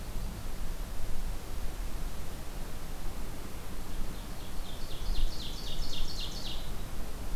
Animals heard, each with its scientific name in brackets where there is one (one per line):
Ovenbird (Seiurus aurocapilla)